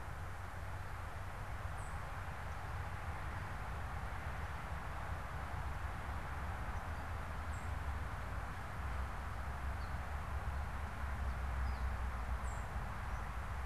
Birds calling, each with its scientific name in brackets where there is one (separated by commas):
unidentified bird, Gray Catbird (Dumetella carolinensis)